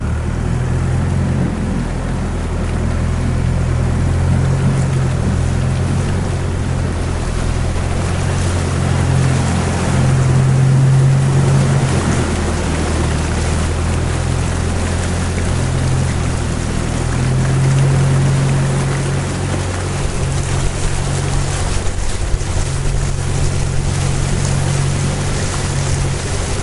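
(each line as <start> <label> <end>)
0.0 Boat engine running with water noises. 26.6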